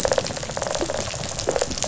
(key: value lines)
label: biophony, rattle response
recorder: SoundTrap 500